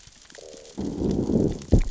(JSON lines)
{"label": "biophony, growl", "recorder": "SoundTrap 600 or HydroMoth"}